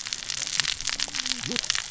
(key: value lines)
label: biophony, cascading saw
recorder: SoundTrap 600 or HydroMoth